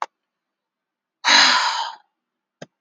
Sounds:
Sigh